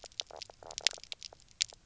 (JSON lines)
{"label": "biophony, knock croak", "recorder": "SoundTrap 300"}